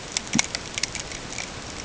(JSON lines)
{"label": "ambient", "recorder": "HydroMoth"}